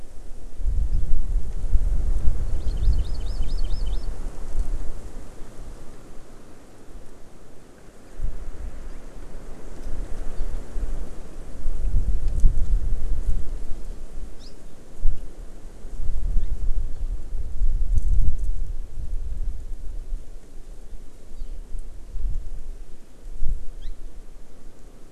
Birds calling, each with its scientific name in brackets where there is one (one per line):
Hawaii Amakihi (Chlorodrepanis virens)